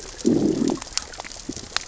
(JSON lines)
{"label": "biophony, growl", "recorder": "SoundTrap 600 or HydroMoth"}